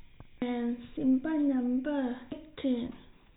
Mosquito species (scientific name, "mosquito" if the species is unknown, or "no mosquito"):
no mosquito